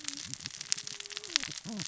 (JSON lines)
{"label": "biophony, cascading saw", "recorder": "SoundTrap 600 or HydroMoth"}